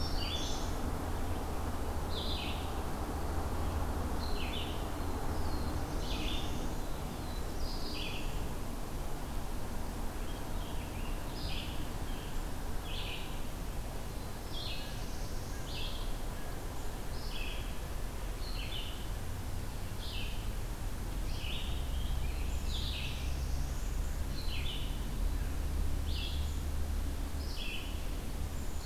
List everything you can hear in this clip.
Black-throated Green Warbler, Red-eyed Vireo, Black-throated Blue Warbler, American Robin, Blue Jay